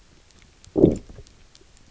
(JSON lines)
{"label": "biophony, low growl", "recorder": "SoundTrap 300"}